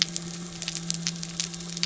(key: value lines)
label: anthrophony, boat engine
recorder: SoundTrap 300